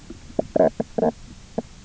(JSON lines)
{"label": "biophony, knock croak", "recorder": "SoundTrap 300"}